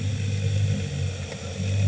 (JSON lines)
{"label": "anthrophony, boat engine", "recorder": "HydroMoth"}